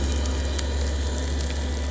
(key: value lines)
label: anthrophony, boat engine
recorder: SoundTrap 300